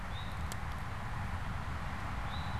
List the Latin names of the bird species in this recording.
Pipilo erythrophthalmus